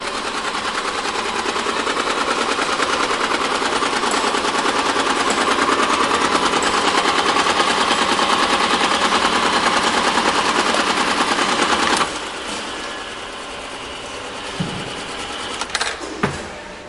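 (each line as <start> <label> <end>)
0.0 A knitting machine operates loudly in a factory. 12.2
12.2 Quiet factory sounds in the background. 15.6
15.6 The sound of a small metal object dropping into a box, followed by the box being closed. 16.9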